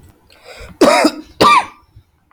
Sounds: Cough